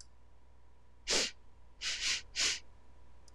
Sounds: Sniff